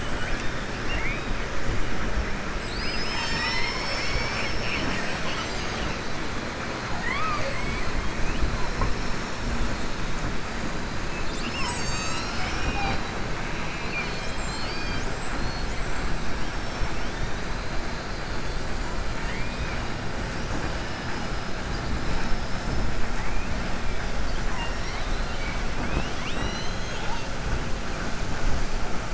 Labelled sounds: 6.9	7.9	killer whale, southern resident, 0.55 to 4.9 kHz
16.4	17.0	killer whale, southern resident, 5.4 to 6.1 kHz
22.0	22.8	killer whale, southern resident, 3.0 to 5.4 kHz
24.4	25.6	killer whale, southern resident, 0.95 to 5.7 kHz

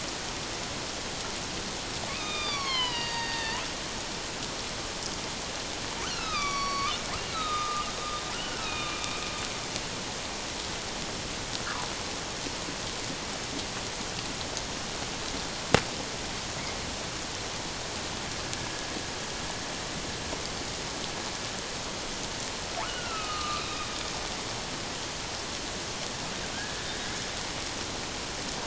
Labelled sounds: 2.1	3.6	killer whale, northern resident, A clan, AA subclan, call N04, 0.88 to 5.4 kHz
6.0	7.0	killer whale, northern resident, A clan, AA subclan, A05 pod, call N04, 1.1 to 5.9 kHz
7.3	7.9	killer whale, northern resident, A clan, AA subclan, call N04, 1.2 to 4.0 kHz
8.3	9.2	killer whale, northern resident, A clan, AA subclan, call N04, 1.2 to 4.0 kHz
22.8	23.6	killer whale, northern resident, A clan, AA subclan, A05 pod, call N04, 0.78 to 3.0 kHz
26.5	27.2	killer whale, northern resident, A clan, AA subclan, 1.4 to 2.3 kHz

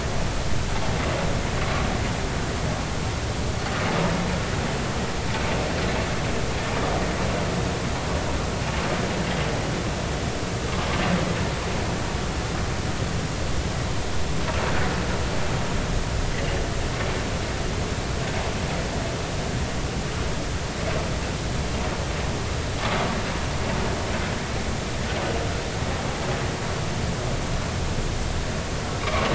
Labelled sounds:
29.0	29.3	vessel noise, 2.1 to 2.4 kHz

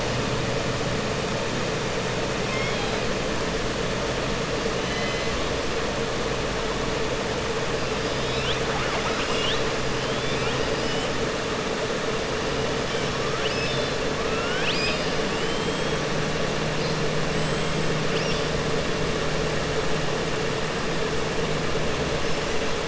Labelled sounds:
2.4	3.0	killer whale, southern resident, 2.1 to 4.1 kHz
4.8	5.3	killer whale, southern resident, 1.7 to 4.1 kHz
8.1	9.6	killer whale, southern resident, 0.77 to 5.7 kHz
13.3	14.0	killer whale, southern resident, 2.6 to 5.6 kHz
14.2	15.9	killer whale, southern resident, 1.4 to 5.4 kHz

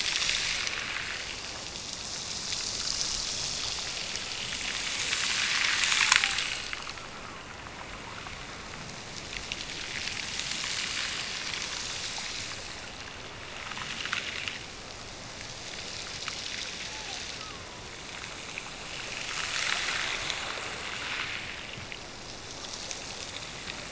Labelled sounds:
16.9	17.9	killer whale, Bigg's (transient), Gulf of Alaska transient, 0.62 to 1.4 kHz

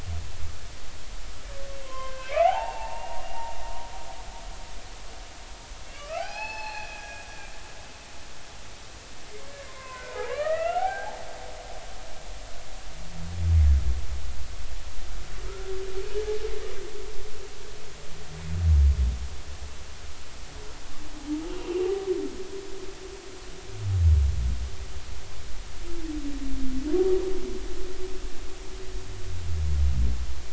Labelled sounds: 1.8	3.2	humpback whale, 0.80 to 3.2 kHz
5.9	7.2	humpback whale, 0.80 to 5.3 kHz
9.5	11.2	humpback whale, 0.80 to 3.0 kHz

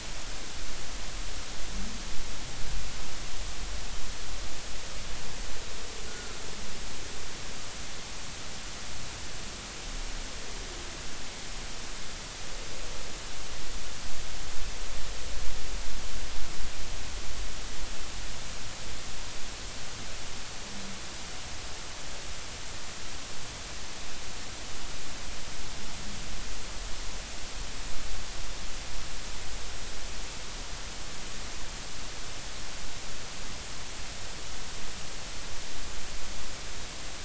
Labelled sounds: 6.1	6.4	humpback whale, 1.3 to 1.5 kHz

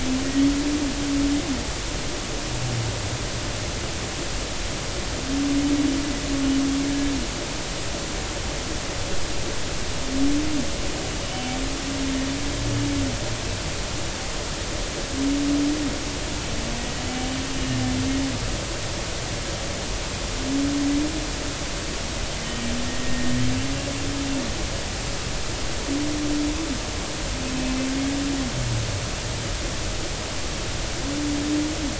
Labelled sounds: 11.2	11.6	humpback whale, 2.8 to 3.1 kHz
17.5	17.8	humpback whale, 2.8 to 2.9 kHz
22.5	23.3	humpback whale, 1.8 to 1.9 kHz

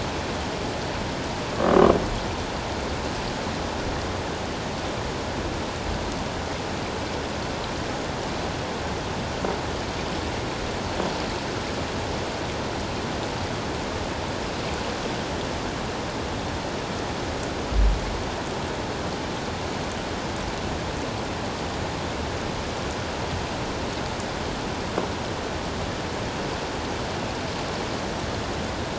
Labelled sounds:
1.5	1.8	croaking sound likely from a nearby submerged object, 1.0 to 1.2 kHz

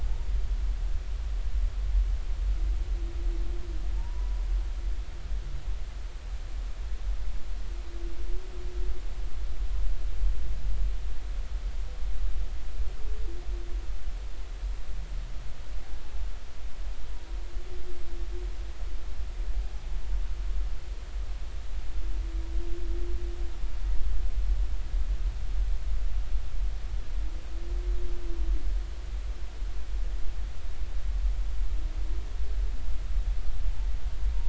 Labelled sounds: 0.0	0.3	humpback whale, 0.80 to 0.99 kHz
4.0	4.4	humpback whale, 0.86 to 1.0 kHz

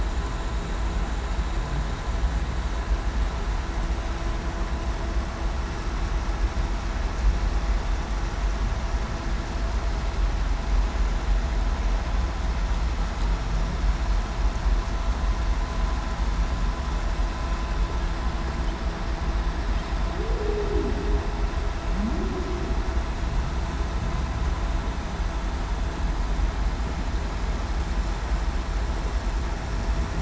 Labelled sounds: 20.2	20.9	humpback whale, 0.23 to 0.52 kHz
21.9	22.3	humpback whale, 0.19 to 0.40 kHz

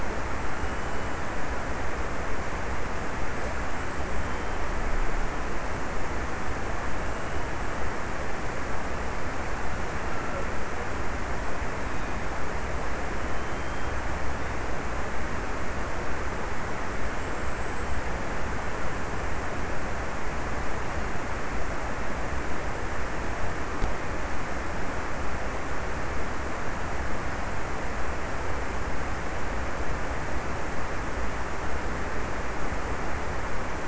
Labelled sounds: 0.0	2.3	killer whale, offshore, 2.1 to 3.3 kHz
3.2	5.3	killer whale, offshore, 2.5 to 3.5 kHz
6.7	7.8	killer whale, offshore, 2.2 to 3.2 kHz
11.5	14.6	killer whale, offshore, 2.2 to 3.5 kHz

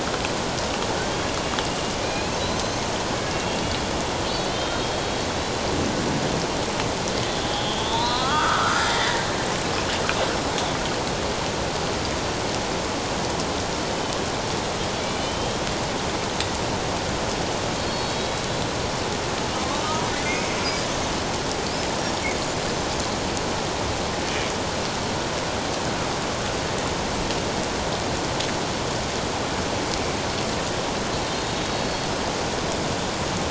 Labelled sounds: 2.0	2.8	killer whale, Bigg's (transient), 2.3 to 6.3 kHz
3.3	3.9	killer whale, Bigg's (transient), 2.7 to 3.5 kHz
4.4	5.1	killer whale, Bigg's (transient), 3.0 to 4.2 kHz
7.4	9.2	killer whale, Bigg's (transient), 0.88 to 4.2 kHz
15.1	15.7	killer whale, Bigg's (transient), 2.9 to 3.4 kHz
17.8	18.6	killer whale, Bigg's (transient), 3.8 to 4.4 kHz
20.2	20.5	killer whale, Bigg's (transient), 2.0 to 2.3 kHz
31.3	32.1	killer whale, Bigg's (transient), 3.6 to 4.4 kHz

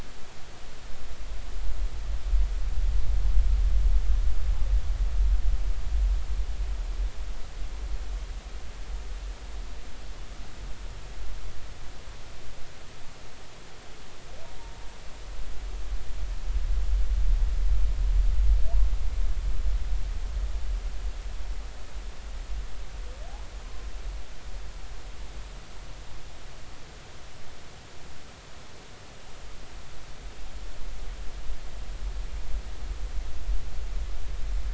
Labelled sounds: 23.6	23.9	humpback whale, 0.99 to 1.1 kHz

